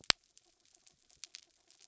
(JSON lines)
{"label": "anthrophony, mechanical", "recorder": "SoundTrap 300"}